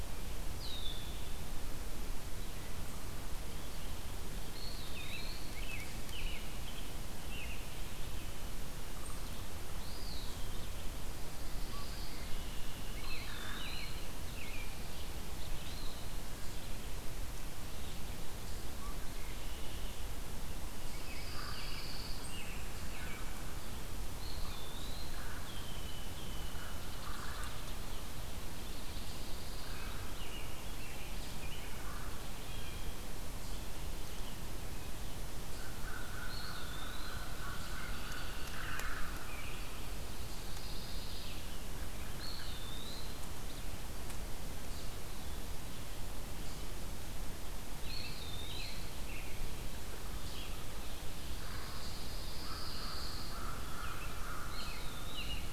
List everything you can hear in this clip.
Red-winged Blackbird, Eastern Wood-Pewee, American Robin, Pine Warbler, American Crow